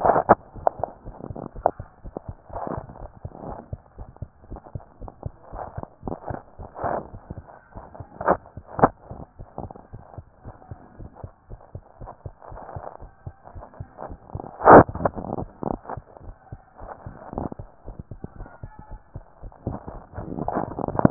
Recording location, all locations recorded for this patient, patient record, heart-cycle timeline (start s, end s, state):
tricuspid valve (TV)
aortic valve (AV)+pulmonary valve (PV)+tricuspid valve (TV)
#Age: Child
#Sex: Female
#Height: 114.0 cm
#Weight: 26.2 kg
#Pregnancy status: False
#Murmur: Absent
#Murmur locations: nan
#Most audible location: nan
#Systolic murmur timing: nan
#Systolic murmur shape: nan
#Systolic murmur grading: nan
#Systolic murmur pitch: nan
#Systolic murmur quality: nan
#Diastolic murmur timing: nan
#Diastolic murmur shape: nan
#Diastolic murmur grading: nan
#Diastolic murmur pitch: nan
#Diastolic murmur quality: nan
#Outcome: Abnormal
#Campaign: 2015 screening campaign
0.00	9.92	unannotated
9.92	10.02	S1
10.02	10.16	systole
10.16	10.26	S2
10.26	10.44	diastole
10.44	10.56	S1
10.56	10.70	systole
10.70	10.79	S2
10.79	10.98	diastole
10.98	11.08	S1
11.08	11.22	systole
11.22	11.32	S2
11.32	11.50	diastole
11.50	11.60	S1
11.60	11.74	systole
11.74	11.84	S2
11.84	12.00	diastole
12.00	12.10	S1
12.10	12.24	systole
12.24	12.33	S2
12.33	12.51	diastole
12.51	12.61	S1
12.61	12.74	systole
12.74	12.84	S2
12.84	13.01	diastole
13.01	13.10	S1
13.10	13.22	systole
13.22	13.34	S2
13.34	13.54	diastole
13.54	13.66	S1
13.66	13.78	systole
13.78	13.88	S2
13.88	14.06	diastole
14.06	14.20	S1
14.20	14.34	systole
14.34	14.48	S2
14.48	14.64	diastole
14.64	16.24	unannotated
16.24	16.36	S1
16.36	16.52	systole
16.52	16.62	S2
16.62	16.81	diastole
16.81	16.92	S1
16.92	17.06	systole
17.06	17.20	S2
17.20	17.36	diastole
17.36	17.50	S1
17.50	17.58	systole
17.58	17.70	S2
17.70	17.88	diastole
17.88	17.98	S1
17.98	18.11	systole
18.11	18.21	S2
18.21	18.36	diastole
18.36	18.48	S1
18.48	18.63	systole
18.63	18.71	S2
18.71	18.90	diastole
18.90	19.02	S1
19.02	19.14	systole
19.14	19.25	S2
19.25	19.43	diastole
19.43	19.54	S1
19.54	21.10	unannotated